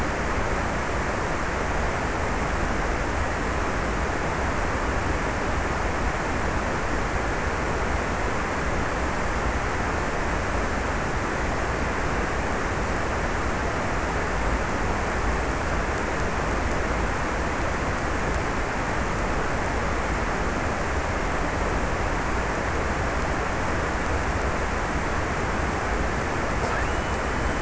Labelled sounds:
26.4	27.6	killer whale, offshore, 1.5 to 3.3 kHz

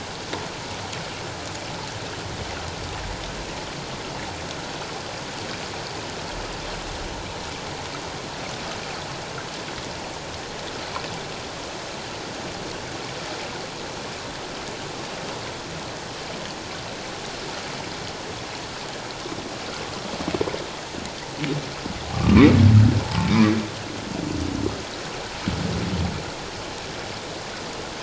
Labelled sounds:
22.1	23.3	humpback whale, 0.78 to 1.2 kHz

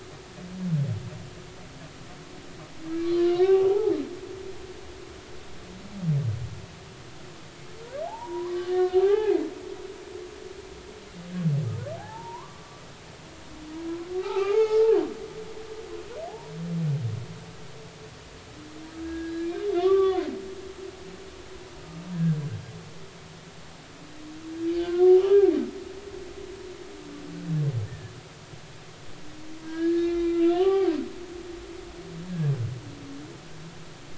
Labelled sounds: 3.2	3.9	humpback whale, 0.80 to 2.0 kHz
8.1	9.4	humpback whale, 0.80 to 2.6 kHz
12.0	12.8	humpback whale, 0.80 to 1.2 kHz
14.2	14.8	humpback whale, 0.80 to 2.5 kHz
16.3	16.5	humpback whale, 0.80 to 0.99 kHz
19.0	20.3	humpback whale, 0.99 to 2.5 kHz
22.1	22.4	humpback whale, 1.5 to 1.8 kHz
24.9	25.5	humpback whale, 0.80 to 3.1 kHz
26.2	26.4	humpback whale, 1.1 to 1.3 kHz
27.9	28.1	humpback whale, 1.6 to 1.9 kHz
29.6	30.9	humpback whale, 0.80 to 4.2 kHz

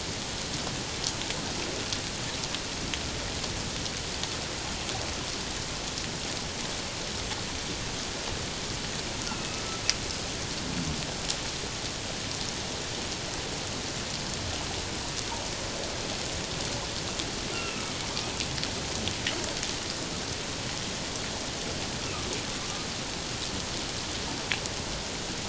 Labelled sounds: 9.3	9.6	killer whale, 2.5 to 2.8 kHz
17.5	17.8	killer whale, 2.6 to 2.9 kHz

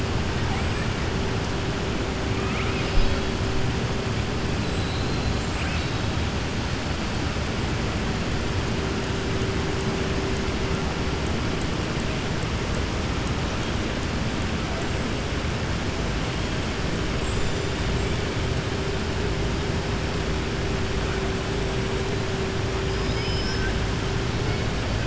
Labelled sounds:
2.3	3.2	killer whale, southern resident, 1.2 to 5.2 kHz
5.5	6.1	killer whale, southern resident, 1.5 to 4.6 kHz
22.9	23.7	killer whale, southern resident, 1.5 to 6.2 kHz

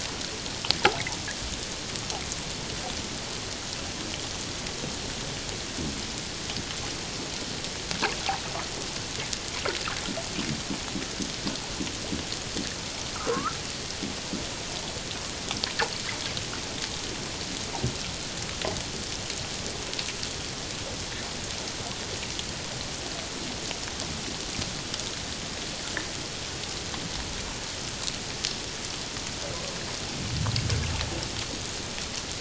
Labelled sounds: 13.1	13.6	fish, 0.94 to 1.7 kHz

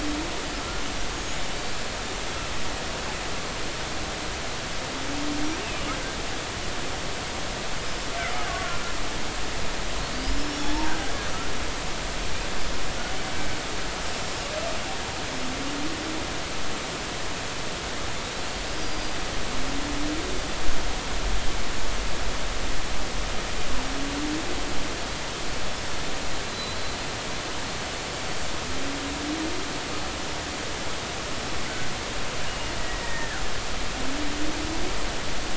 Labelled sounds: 1.1	1.4	killer whale, Bigg's (transient), 6.5 to 7.0 kHz
8.4	8.8	killer whale, Bigg's (transient), 1.3 to 1.7 kHz
10.1	11.1	killer whale, Bigg's (transient), 0.80 to 5.6 kHz
18.7	19.1	killer whale, Bigg's (transient), 4.7 to 4.9 kHz
26.4	26.8	killer whale, Bigg's (transient), 3.9 to 4.1 kHz
32.5	32.7	killer whale, Bigg's (transient), 2.8 to 2.9 kHz
33.0	33.4	killer whale, Bigg's (transient), 1.4 to 1.9 kHz

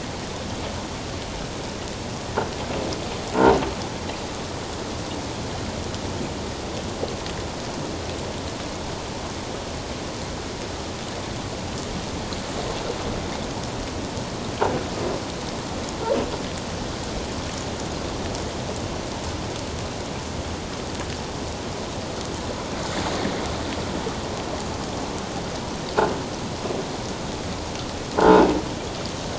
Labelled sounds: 28.2	28.5	croaking sound likely from a nearby submerged object, 1.3 to 1.6 kHz

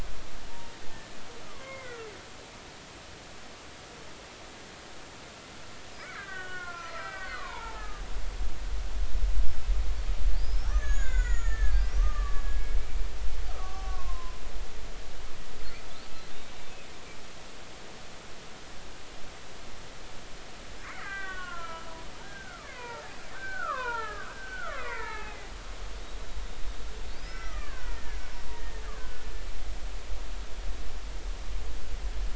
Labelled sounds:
0.5	1.2	killer whale, Bigg's (transient), 0.90 to 1.8 kHz
1.5	2.1	killer whale, Bigg's (transient), 0.99 to 2.3 kHz
6.0	8.4	killer whale, Bigg's (transient), 0.80 to 3.1 kHz
10.4	12.7	killer whale, Bigg's (transient), 1.1 to 7.0 kHz
13.5	14.4	killer whale, Bigg's (transient), 0.96 to 1.4 kHz
20.8	21.9	killer whale, Bigg's (transient), 0.93 to 3.1 kHz
22.2	25.4	killer whale, Bigg's (transient), 0.80 to 2.8 kHz
27.1	29.3	killer whale, Bigg's (transient), 0.90 to 5.9 kHz

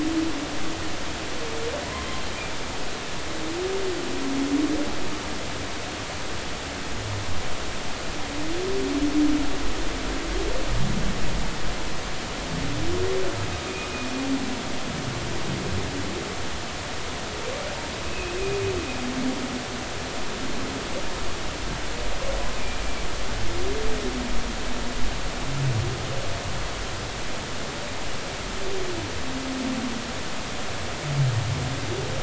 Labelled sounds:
18.0	18.4	humpback whale, 2.4 to 2.7 kHz

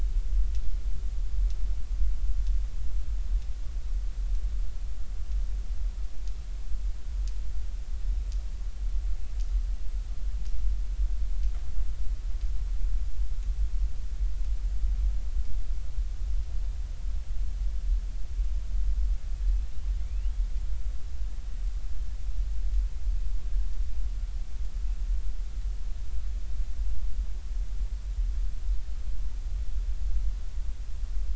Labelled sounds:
20.0	20.3	killer whale, northern resident, 2.2 to 3.0 kHz

